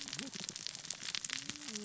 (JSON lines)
{"label": "biophony, cascading saw", "recorder": "SoundTrap 600 or HydroMoth"}